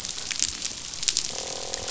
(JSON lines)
{"label": "biophony, croak", "recorder": "SoundTrap 500"}